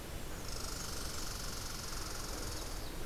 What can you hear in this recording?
Red Squirrel